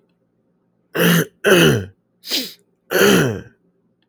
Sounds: Throat clearing